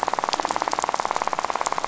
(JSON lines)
{"label": "biophony, rattle", "recorder": "SoundTrap 500"}